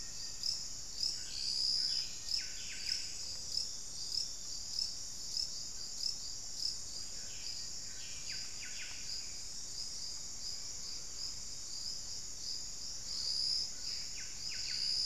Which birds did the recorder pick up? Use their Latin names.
Formicarius analis, Cantorchilus leucotis, unidentified bird